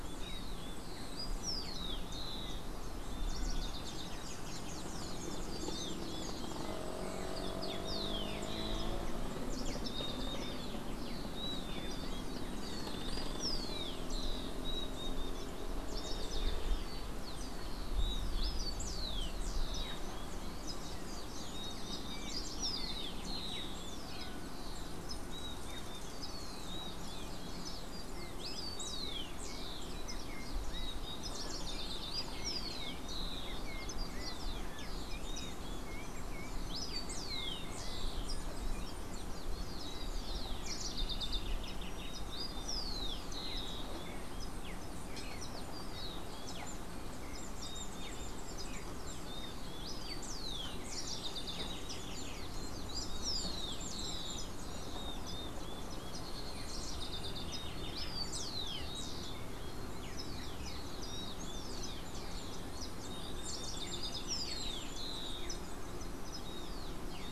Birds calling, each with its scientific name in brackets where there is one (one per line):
Yellow-backed Oriole (Icterus chrysater)
House Wren (Troglodytes aedon)
Rufous-collared Sparrow (Zonotrichia capensis)